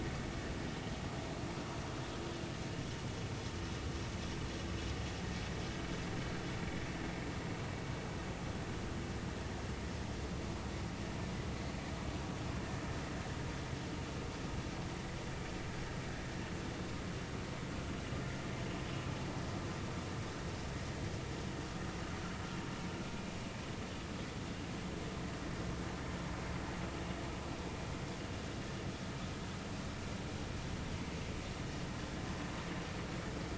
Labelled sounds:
12.5	12.8	vessel noise, 1.7 to 1.9 kHz

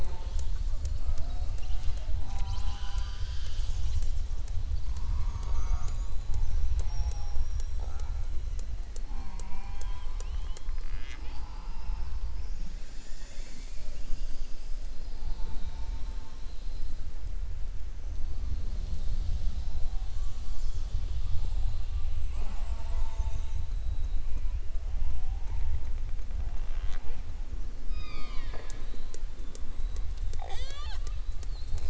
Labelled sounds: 27.8	28.9	killer whale, southern resident, 0.29 to 5.2 kHz

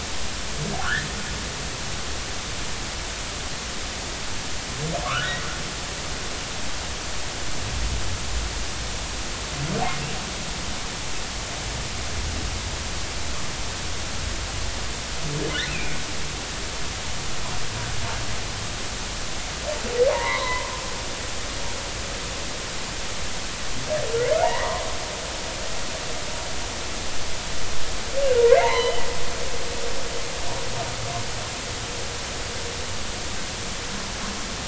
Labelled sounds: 0.8	1.1	humpback whale, 1.3 to 1.9 kHz
5.0	5.3	humpback whale, 1.0 to 1.6 kHz
15.7	16.0	humpback whale, 2.2 to 2.8 kHz
20.1	20.7	humpback whale, 0.86 to 2.3 kHz
24.4	24.8	humpback whale, 0.80 to 2.0 kHz
28.5	29.0	humpback whale, 0.83 to 4.2 kHz

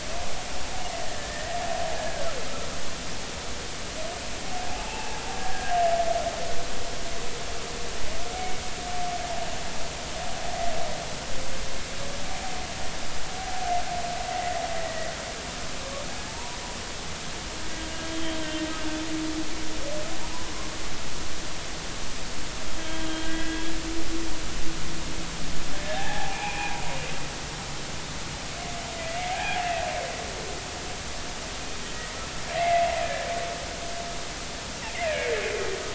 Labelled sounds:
1.0	1.6	humpback whale, 1.7 to 2.0 kHz
4.7	5.7	humpback whale, 0.80 to 2.8 kHz
14.7	15.1	humpback whale, 1.8 to 2.0 kHz
16.3	16.6	humpback whale, 0.83 to 1.1 kHz
18.1	18.4	humpback whale, 3.0 to 3.3 kHz
22.8	23.7	humpback whale, 1.5 to 3.4 kHz
25.8	26.7	humpback whale, 0.80 to 2.7 kHz
32.5	33.3	humpback whale, 1.6 to 2.2 kHz
35.1	35.3	humpback whale, 2.1 to 2.6 kHz

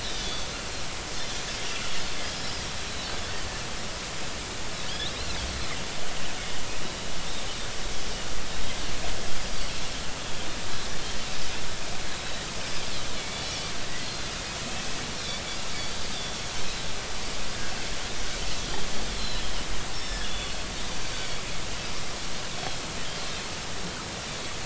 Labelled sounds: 0.0	0.5	Pacific white-sided dolphin, 3.3 to 4.9 kHz
2.4	2.6	Pacific white-sided dolphin, 4.9 to 5.4 kHz
4.9	5.3	Pacific white-sided dolphin, 2.9 to 4.4 kHz
9.5	9.8	Pacific white-sided dolphin, 4.2 to 4.9 kHz
13.2	13.7	Pacific white-sided dolphin, 2.2 to 3.1 kHz
14.0	14.3	Pacific white-sided dolphin, 4.0 to 4.3 kHz
19.1	19.4	Pacific white-sided dolphin, 3.8 to 4.2 kHz
19.9	20.5	Pacific white-sided dolphin, 3.3 to 5.5 kHz
21.0	21.3	Pacific white-sided dolphin, 4.4 to 4.6 kHz

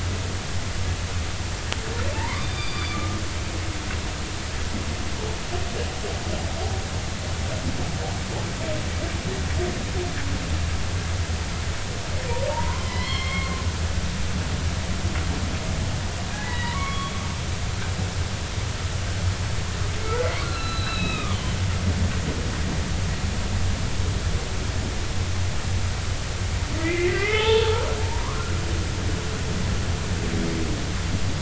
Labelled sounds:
2.1	3.2	humpback whale, 0.83 to 4.8 kHz
12.5	13.6	humpback whale, 0.83 to 4.4 kHz
16.3	17.1	humpback whale, 0.80 to 4.1 kHz
17.7	18.0	humpback whale, 2.1 to 2.3 kHz
20.2	21.6	humpback whale, 0.99 to 4.2 kHz
26.8	27.7	humpback whale, 0.80 to 3.6 kHz
28.1	28.5	humpback whale, 0.86 to 1.5 kHz

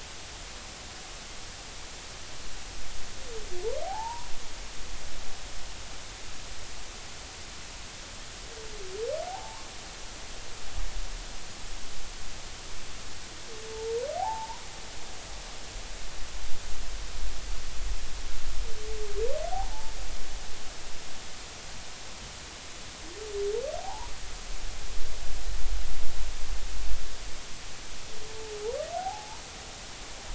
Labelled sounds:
3.8	4.3	humpback whale, 0.80 to 1.1 kHz
9.3	9.7	humpback whale, 0.80 to 1.1 kHz
14.2	14.7	humpback whale, 0.80 to 1.1 kHz
19.5	20.0	humpback whale, 0.80 to 0.96 kHz
23.8	24.1	humpback whale, 0.80 to 1.1 kHz
29.0	29.4	humpback whale, 0.80 to 1.0 kHz

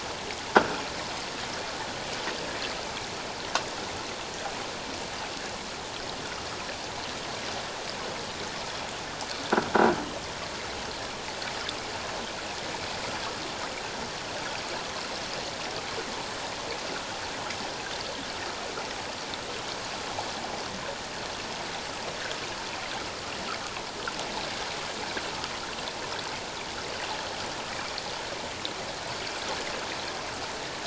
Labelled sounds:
0.5	0.8	croaking sound likely from a nearby submerged object, 1.3 to 1.6 kHz

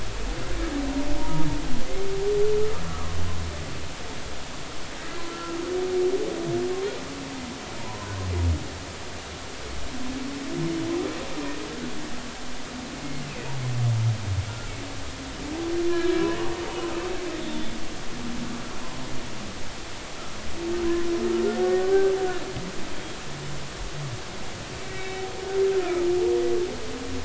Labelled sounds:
1.2	1.5	humpback whale, 0.86 to 0.99 kHz
2.9	3.2	humpback whale, 1.0 to 1.4 kHz
5.3	5.6	humpback whale, 1.3 to 1.4 kHz
7.8	8.1	humpback whale, 0.80 to 1.1 kHz
13.3	13.5	humpback whale, 2.4 to 2.7 kHz
15.9	16.3	humpback whale, 1.6 to 1.8 kHz
17.4	17.8	humpback whale, 3.4 to 3.6 kHz
21.6	21.9	humpback whale, 1.4 to 1.5 kHz
24.8	25.2	humpback whale, 2.2 to 2.7 kHz
25.8	26.1	humpback whale, 1.2 to 1.4 kHz

